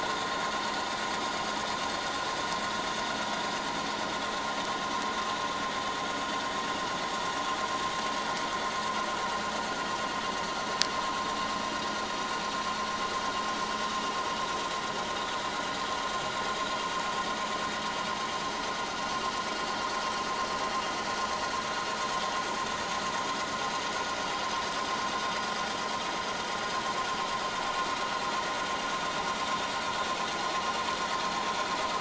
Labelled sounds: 6.1	6.4	vessel noise, 4.4 to 4.7 kHz

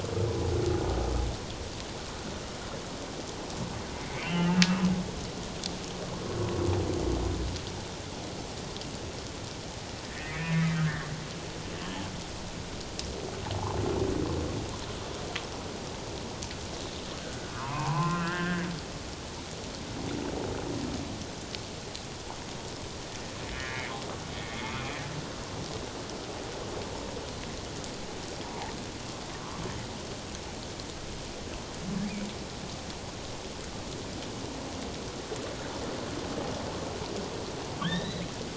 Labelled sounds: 4.0	4.6	humpback whale, 1.3 to 3.2 kHz
10.0	11.1	humpback whale, 1.2 to 2.7 kHz
17.2	18.7	humpback whale, 0.78 to 2.8 kHz
23.5	24.8	humpback whale, 1.6 to 2.3 kHz
37.8	38.3	humpback whale, 1.4 to 4.0 kHz

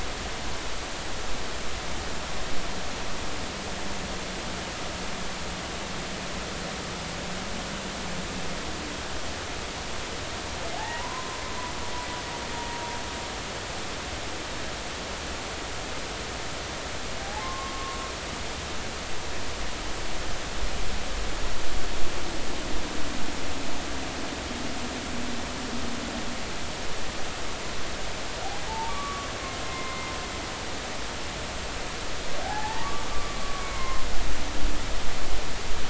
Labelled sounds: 10.8	11.4	humpback whale, 0.80 to 2.0 kHz
17.2	18.0	humpback whale, 0.80 to 1.2 kHz
28.7	29.3	humpback whale, 0.80 to 1.2 kHz
29.6	30.1	humpback whale, 0.99 to 2.1 kHz
32.4	34.0	humpback whale, 0.80 to 2.3 kHz

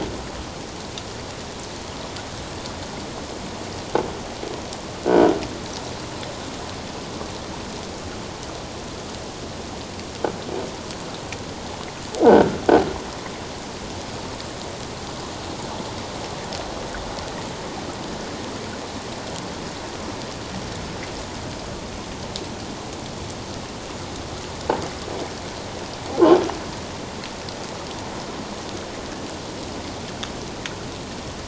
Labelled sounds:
5.1	5.3	croaking sound likely from a nearby submerged object, 1.3 to 1.6 kHz
12.2	12.5	croaking sound likely from a nearby submerged object, 1.4 to 1.6 kHz

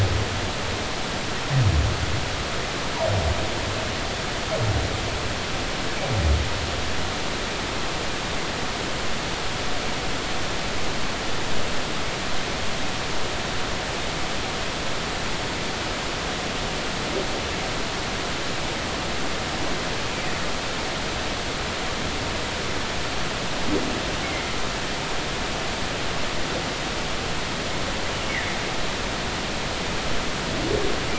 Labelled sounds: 24.2	24.6	humpback whale, 2.0 to 2.3 kHz

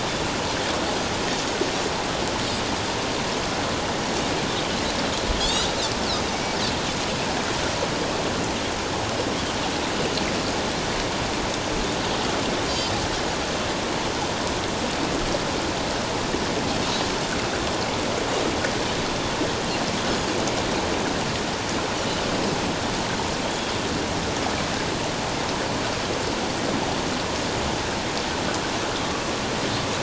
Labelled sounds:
5.4	5.7	Pacific white-sided dolphin, 3.2 to 5.1 kHz
12.7	13.0	Pacific white-sided dolphin, 4.9 to 5.2 kHz
23.4	23.7	Pacific white-sided dolphin, 3.1 to 3.5 kHz

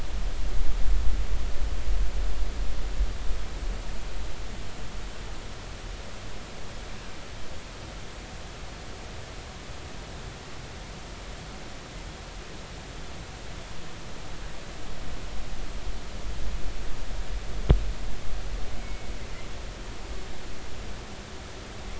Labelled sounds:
18.8	19.1	killer whale, northern resident, G clan, GI subclan, call N23i, 2.1 to 2.3 kHz

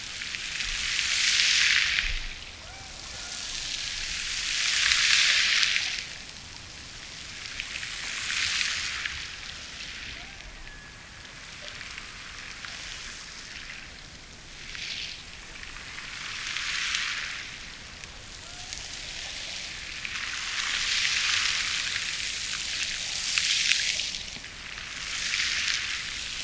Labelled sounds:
2.5	4.1	killer whale, Bigg's (transient), Gulf of Alaska transient, 0.41 to 1.9 kHz
10.1	11.6	killer whale, Bigg's (transient), Gulf of Alaska transient, 0.48 to 1.9 kHz
18.4	19.8	killer whale, Bigg's (transient), Gulf of Alaska transient, 0.43 to 1.6 kHz

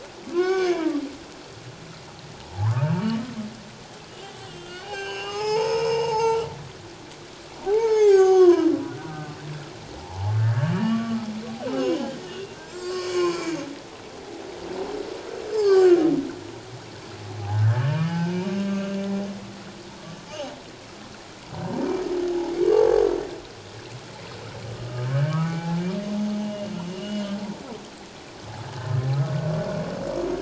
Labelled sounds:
0.3	0.9	humpback whale, 0.97 to 6.5 kHz
2.4	3.0	humpback whale, 0.78 to 1.4 kHz
4.5	6.5	humpback whale, 0.78 to 7.6 kHz
7.7	8.7	humpback whale, 0.78 to 6.9 kHz
9.1	9.4	humpback whale, 1.2 to 1.3 kHz
10.0	11.3	humpback whale, 0.78 to 1.8 kHz
11.7	13.6	humpback whale, 0.97 to 7.7 kHz
15.5	16.0	humpback whale, 1.1 to 7.6 kHz
17.4	19.0	humpback whale, 0.78 to 1.8 kHz
24.7	27.4	humpback whale, 0.78 to 3.4 kHz
28.8	29.1	humpback whale, 1.7 to 1.9 kHz

